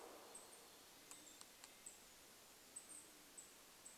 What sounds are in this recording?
Red-breasted Nuthatch song, warbler song, woodpecker drumming, Band-tailed Pigeon call, Golden-crowned Kinglet call